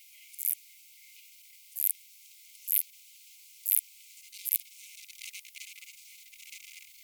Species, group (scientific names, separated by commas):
Poecilimon gracilis, Orthoptera